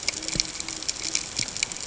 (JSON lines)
{"label": "ambient", "recorder": "HydroMoth"}